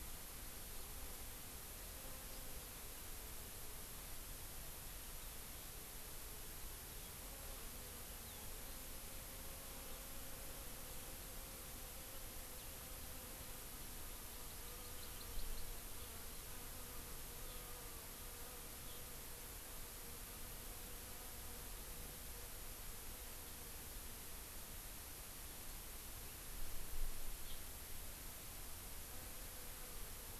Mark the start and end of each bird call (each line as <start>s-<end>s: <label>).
14.3s-16.1s: Hawaii Amakihi (Chlorodrepanis virens)
17.3s-17.7s: Eurasian Skylark (Alauda arvensis)
18.8s-19.0s: Eurasian Skylark (Alauda arvensis)
27.4s-27.5s: House Finch (Haemorhous mexicanus)